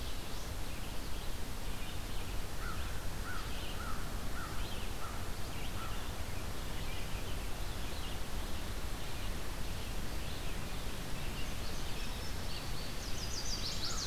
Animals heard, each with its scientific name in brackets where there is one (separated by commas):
Chestnut-sided Warbler (Setophaga pensylvanica), American Crow (Corvus brachyrhynchos), Red-eyed Vireo (Vireo olivaceus), Indigo Bunting (Passerina cyanea)